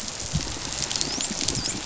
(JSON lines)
{"label": "biophony, dolphin", "recorder": "SoundTrap 500"}